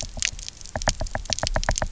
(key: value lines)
label: biophony, knock
recorder: SoundTrap 300